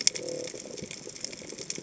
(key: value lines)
label: biophony
recorder: HydroMoth